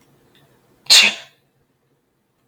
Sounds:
Sneeze